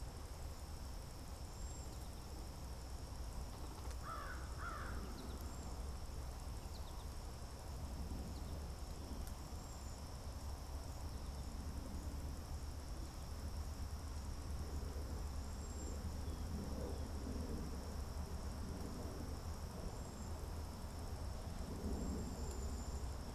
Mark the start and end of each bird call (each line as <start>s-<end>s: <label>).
1.1s-2.0s: Cedar Waxwing (Bombycilla cedrorum)
3.8s-5.2s: American Crow (Corvus brachyrhynchos)
5.0s-8.9s: American Goldfinch (Spinus tristis)
5.2s-23.3s: Cedar Waxwing (Bombycilla cedrorum)